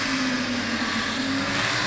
{"label": "anthrophony, boat engine", "recorder": "SoundTrap 500"}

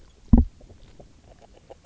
{"label": "biophony, grazing", "recorder": "SoundTrap 300"}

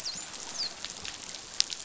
{"label": "biophony, dolphin", "recorder": "SoundTrap 500"}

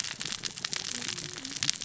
{"label": "biophony, cascading saw", "recorder": "SoundTrap 600 or HydroMoth"}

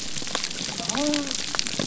{"label": "biophony", "recorder": "SoundTrap 300"}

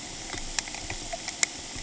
{"label": "ambient", "recorder": "HydroMoth"}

